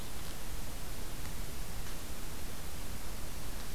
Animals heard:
forest ambience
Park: Katahdin Woods and Waters National Monument